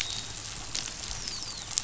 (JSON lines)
{"label": "biophony, dolphin", "recorder": "SoundTrap 500"}